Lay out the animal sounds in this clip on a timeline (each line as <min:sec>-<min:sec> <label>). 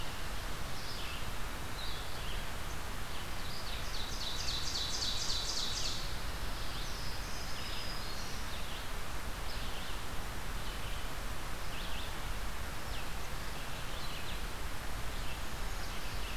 0:00.6-0:16.4 Red-eyed Vireo (Vireo olivaceus)
0:03.3-0:06.0 Ovenbird (Seiurus aurocapilla)
0:07.1-0:08.5 Black-throated Green Warbler (Setophaga virens)